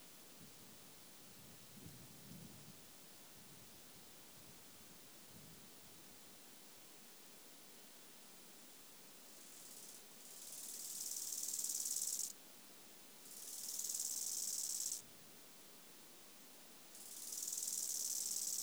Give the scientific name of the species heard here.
Chorthippus biguttulus